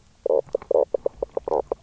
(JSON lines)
{"label": "biophony, knock croak", "recorder": "SoundTrap 300"}